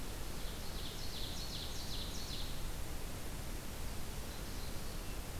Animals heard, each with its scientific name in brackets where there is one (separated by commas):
Ovenbird (Seiurus aurocapilla)